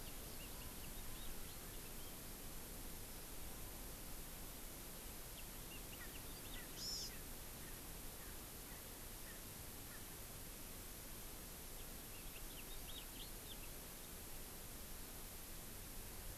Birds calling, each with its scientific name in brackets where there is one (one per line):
House Finch (Haemorhous mexicanus)
Hawaii Amakihi (Chlorodrepanis virens)
Erckel's Francolin (Pternistis erckelii)